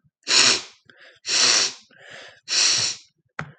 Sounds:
Sniff